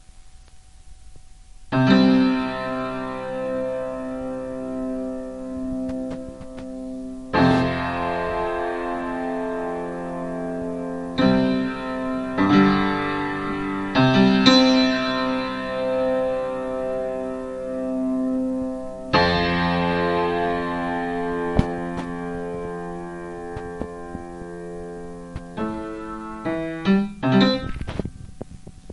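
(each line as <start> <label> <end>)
1.7 Piano keys being pressed. 5.9
7.3 Piano keys being pressed. 18.5
19.1 Piano keys being pressed. 21.4
25.6 Piano keys being pressed. 28.1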